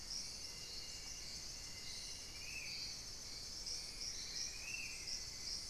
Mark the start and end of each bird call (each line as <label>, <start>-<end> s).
Spot-winged Antshrike (Pygiptila stellaris), 0.0-5.3 s